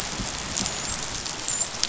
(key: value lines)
label: biophony, dolphin
recorder: SoundTrap 500